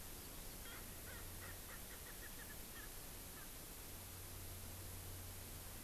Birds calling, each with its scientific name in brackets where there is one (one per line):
Erckel's Francolin (Pternistis erckelii)